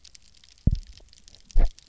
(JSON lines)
{"label": "biophony, double pulse", "recorder": "SoundTrap 300"}